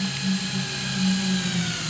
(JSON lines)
{"label": "anthrophony, boat engine", "recorder": "SoundTrap 500"}